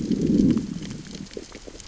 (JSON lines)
{"label": "biophony, growl", "recorder": "SoundTrap 600 or HydroMoth"}